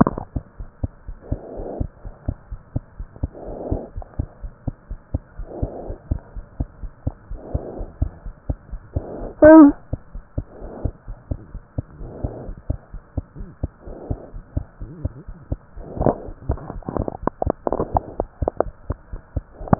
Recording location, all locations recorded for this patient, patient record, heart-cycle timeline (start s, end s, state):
pulmonary valve (PV)
pulmonary valve (PV)+tricuspid valve (TV)+mitral valve (MV)
#Age: Child
#Sex: Female
#Height: 78.0 cm
#Weight: 11.9 kg
#Pregnancy status: False
#Murmur: Absent
#Murmur locations: nan
#Most audible location: nan
#Systolic murmur timing: nan
#Systolic murmur shape: nan
#Systolic murmur grading: nan
#Systolic murmur pitch: nan
#Systolic murmur quality: nan
#Diastolic murmur timing: nan
#Diastolic murmur shape: nan
#Diastolic murmur grading: nan
#Diastolic murmur pitch: nan
#Diastolic murmur quality: nan
#Outcome: Normal
#Campaign: 2015 screening campaign
0.00	0.57	unannotated
0.57	0.70	S1
0.70	0.81	systole
0.81	0.88	S2
0.88	1.05	diastole
1.05	1.15	S1
1.15	1.28	systole
1.28	1.37	S2
1.37	1.55	diastole
1.55	1.66	S1
1.66	1.78	systole
1.78	1.88	S2
1.88	2.03	diastole
2.03	2.14	S1
2.14	2.25	systole
2.25	2.35	S2
2.35	2.50	diastole
2.50	2.58	S1
2.58	2.73	systole
2.73	2.80	S2
2.80	2.97	diastole
2.97	3.09	S1
3.09	3.21	systole
3.21	3.30	S2
3.30	3.46	diastole
3.46	3.56	S1
3.56	3.69	systole
3.69	3.78	S2
3.78	3.95	diastole
3.95	4.05	S1
4.05	4.17	systole
4.17	4.27	S2
4.27	4.41	diastole
4.41	4.52	S1
4.52	4.66	systole
4.66	4.73	S2
4.73	4.89	diastole
4.89	4.98	S1
4.98	5.12	systole
5.12	5.20	S2
5.20	5.37	diastole
5.37	5.47	S1
5.47	5.61	systole
5.61	5.69	S2
5.69	5.88	diastole
5.88	5.97	S1
5.97	6.08	systole
6.08	6.19	S2
6.19	6.35	diastole
6.35	6.44	S1
6.44	6.58	systole
6.58	6.67	S2
6.67	6.82	diastole
6.82	6.90	S1
6.90	7.05	systole
7.05	7.13	S2
7.13	7.29	diastole
7.29	7.38	S1
7.38	19.79	unannotated